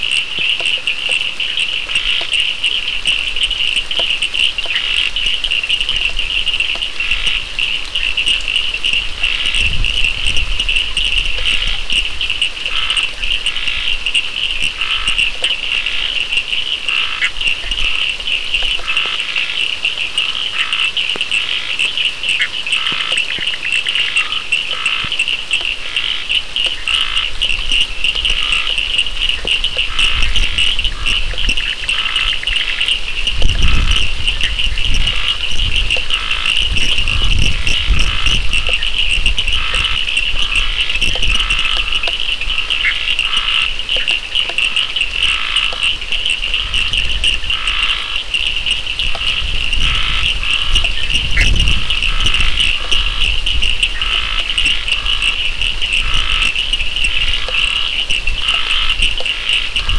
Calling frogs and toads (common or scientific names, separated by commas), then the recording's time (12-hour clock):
Cochran's lime tree frog, Scinax perereca, Bischoff's tree frog
7:30pm